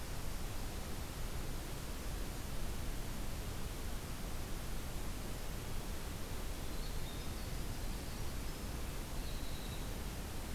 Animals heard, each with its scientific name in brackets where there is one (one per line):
Winter Wren (Troglodytes hiemalis)